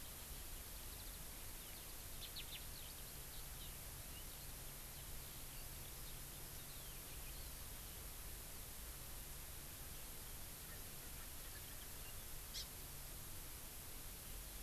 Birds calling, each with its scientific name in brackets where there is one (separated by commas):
Eurasian Skylark (Alauda arvensis), Hawaii Amakihi (Chlorodrepanis virens)